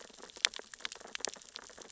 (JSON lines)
{"label": "biophony, sea urchins (Echinidae)", "recorder": "SoundTrap 600 or HydroMoth"}